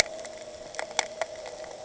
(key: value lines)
label: anthrophony, boat engine
recorder: HydroMoth